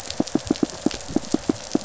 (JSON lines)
{"label": "biophony, pulse", "recorder": "SoundTrap 500"}